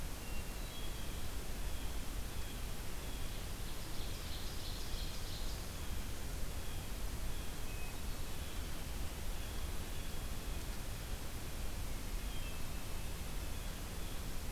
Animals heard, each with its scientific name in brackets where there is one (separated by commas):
Hermit Thrush (Catharus guttatus), Blue Jay (Cyanocitta cristata), Ovenbird (Seiurus aurocapilla)